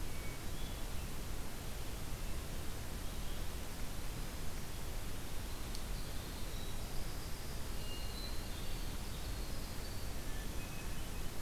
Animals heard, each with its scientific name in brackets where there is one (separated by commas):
Hermit Thrush (Catharus guttatus), Winter Wren (Troglodytes hiemalis)